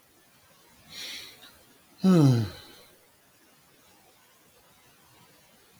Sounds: Sigh